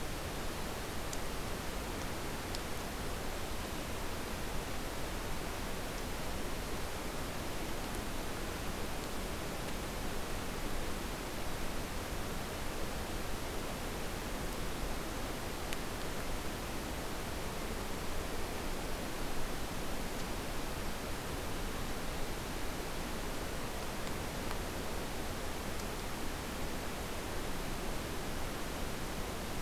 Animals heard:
forest ambience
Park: Acadia National Park